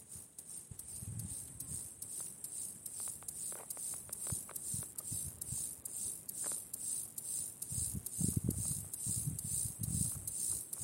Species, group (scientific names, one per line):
Chorthippus mollis
Orthoptera